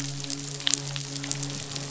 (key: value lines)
label: biophony, midshipman
recorder: SoundTrap 500